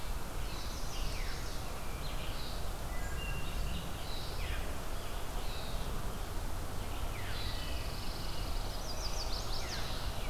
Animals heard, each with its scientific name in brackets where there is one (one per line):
Chestnut-sided Warbler (Setophaga pensylvanica)
Wood Thrush (Hylocichla mustelina)
Pine Warbler (Setophaga pinus)
Red-eyed Vireo (Vireo olivaceus)